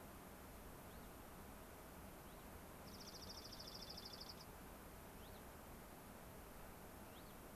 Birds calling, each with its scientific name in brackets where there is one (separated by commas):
Dark-eyed Junco (Junco hyemalis), Cassin's Finch (Haemorhous cassinii)